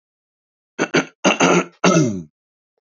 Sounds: Throat clearing